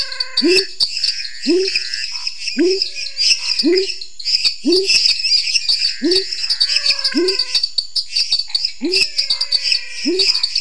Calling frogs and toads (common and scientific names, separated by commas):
menwig frog (Physalaemus albonotatus), lesser tree frog (Dendropsophus minutus), dwarf tree frog (Dendropsophus nanus), pepper frog (Leptodactylus labyrinthicus), pointedbelly frog (Leptodactylus podicipinus), Pithecopus azureus, Scinax fuscovarius